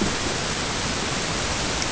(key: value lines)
label: ambient
recorder: HydroMoth